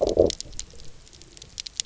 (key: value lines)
label: biophony, low growl
recorder: SoundTrap 300